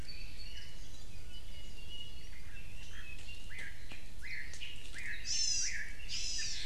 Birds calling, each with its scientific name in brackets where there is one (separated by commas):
Hawaii Amakihi (Chlorodrepanis virens), Chinese Hwamei (Garrulax canorus)